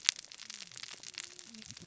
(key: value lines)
label: biophony, cascading saw
recorder: SoundTrap 600 or HydroMoth